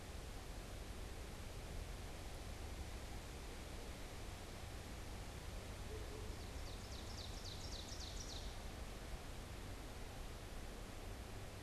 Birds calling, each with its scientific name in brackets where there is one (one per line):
Ovenbird (Seiurus aurocapilla)